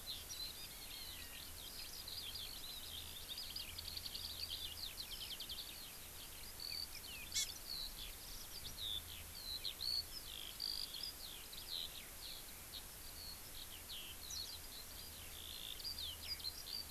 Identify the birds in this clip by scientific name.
Alauda arvensis, Zosterops japonicus, Chlorodrepanis virens